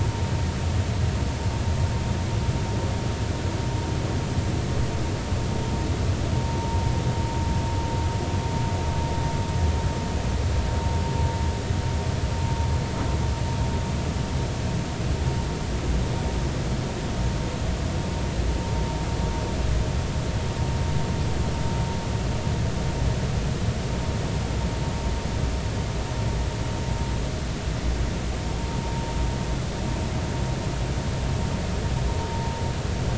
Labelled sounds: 28.8	29.0	vessel noise, 0.90 to 0.96 kHz

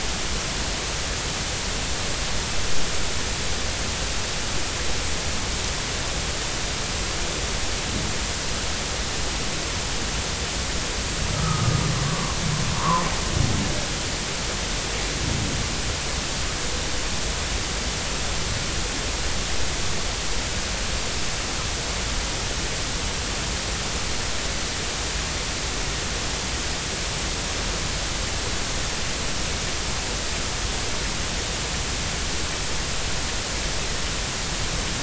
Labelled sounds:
11.3	12.3	humpback whale, 0.96 to 1.3 kHz
12.7	13.1	humpback whale, 0.80 to 1.2 kHz

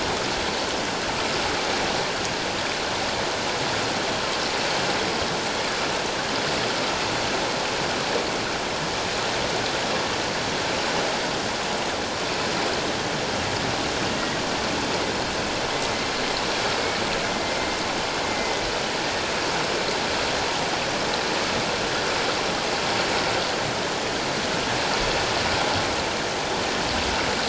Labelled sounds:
18.2	18.6	killer whale, 2.0 to 2.1 kHz

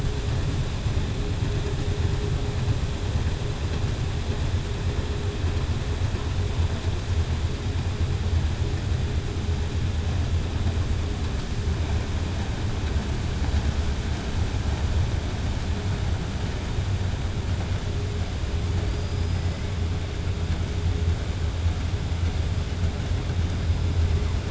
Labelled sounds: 18.9	19.5	killer whale, southern resident, 4.7 to 5.1 kHz

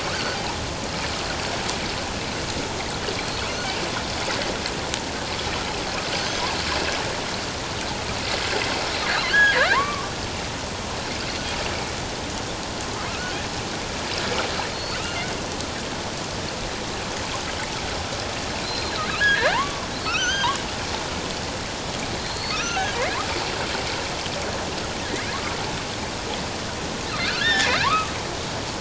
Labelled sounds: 3.2	3.5	killer whale, offshore, 4.1 to 4.6 kHz
6.2	6.4	killer whale, offshore, 6.1 to 6.3 kHz
9.2	10.1	killer whale, offshore, 0.91 to 3.4 kHz
14.7	15.3	killer whale, offshore, 2.5 to 4.5 kHz
18.6	20.6	killer whale, offshore, 0.78 to 6.5 kHz
22.1	22.9	killer whale, offshore, 1.2 to 6.3 kHz
25.1	25.4	killer whale, offshore, 1.8 to 2.6 kHz
27.2	28.1	killer whale, offshore, 0.84 to 3.7 kHz

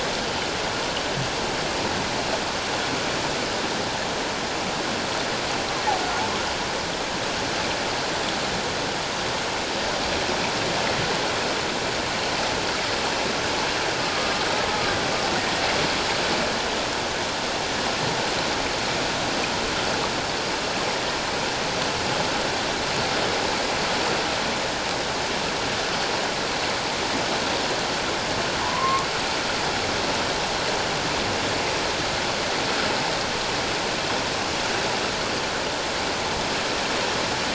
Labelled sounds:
28.6	29.1	humpback whale, 0.84 to 1.2 kHz

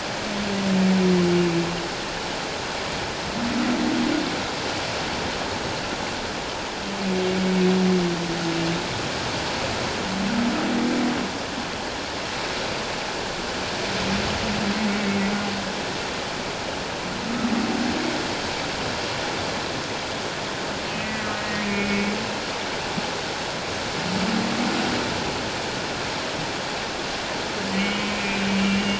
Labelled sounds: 14.9	15.3	humpback whale, 2.1 to 2.3 kHz
21.0	22.2	humpback whale, 1.9 to 2.5 kHz
27.7	28.9	humpback whale, 2.1 to 3.1 kHz

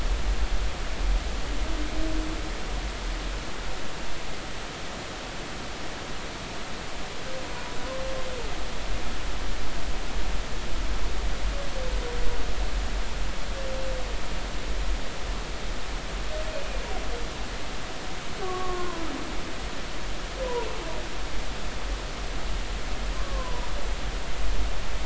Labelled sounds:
18.4	19.1	humpback whale, 0.93 to 1.2 kHz
20.4	20.7	humpback whale, 0.90 to 1.0 kHz
23.1	23.7	humpback whale, 0.90 to 1.2 kHz

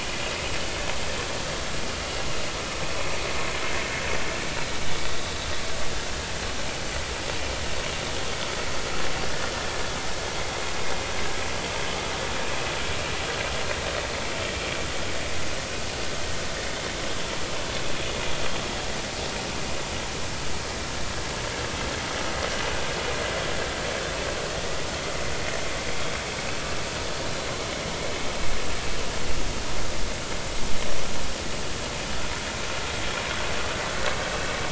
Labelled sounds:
0.2	0.5	vessel noise, 2.5 to 3.0 kHz

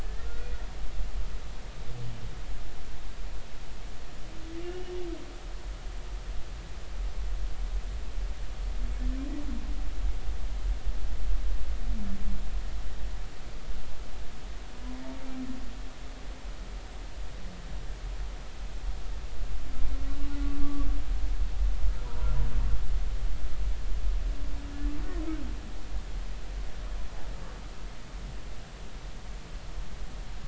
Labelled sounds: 0.0	0.5	humpback whale, 1.3 to 1.9 kHz
20.6	20.9	humpback whale, 1.1 to 1.2 kHz
22.0	22.3	humpback whale, 0.93 to 1.0 kHz

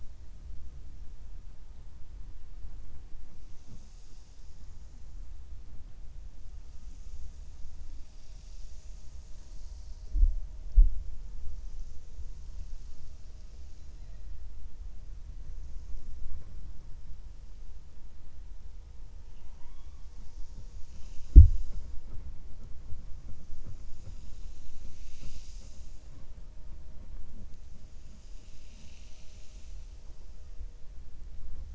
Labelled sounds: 19.2	20.0	killer whale, 0.89 to 3.6 kHz

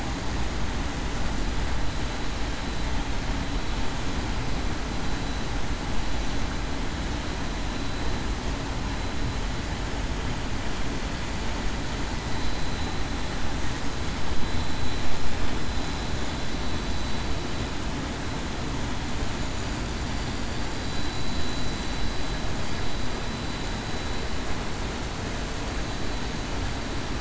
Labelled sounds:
20.8	21.3	vessel noise, 3.9 to 4.0 kHz

